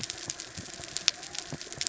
{"label": "biophony", "recorder": "SoundTrap 300"}
{"label": "anthrophony, mechanical", "recorder": "SoundTrap 300"}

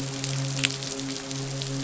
{"label": "biophony, midshipman", "recorder": "SoundTrap 500"}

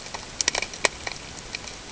{"label": "ambient", "recorder": "HydroMoth"}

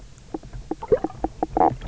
{"label": "biophony, knock croak", "recorder": "SoundTrap 300"}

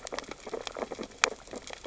{"label": "biophony, sea urchins (Echinidae)", "recorder": "SoundTrap 600 or HydroMoth"}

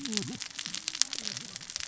{"label": "biophony, cascading saw", "recorder": "SoundTrap 600 or HydroMoth"}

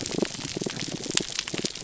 {"label": "biophony, pulse", "recorder": "SoundTrap 300"}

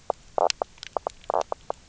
{"label": "biophony, knock croak", "recorder": "SoundTrap 300"}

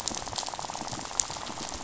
{"label": "biophony, rattle", "recorder": "SoundTrap 500"}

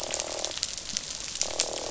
{"label": "biophony, croak", "recorder": "SoundTrap 500"}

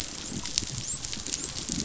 {"label": "biophony, dolphin", "recorder": "SoundTrap 500"}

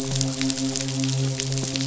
{"label": "biophony, midshipman", "recorder": "SoundTrap 500"}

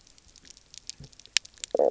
{"label": "biophony, stridulation", "recorder": "SoundTrap 300"}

